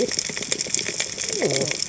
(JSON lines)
{"label": "biophony, cascading saw", "recorder": "HydroMoth"}